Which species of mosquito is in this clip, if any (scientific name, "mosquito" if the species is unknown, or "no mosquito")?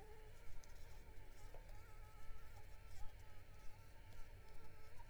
Anopheles arabiensis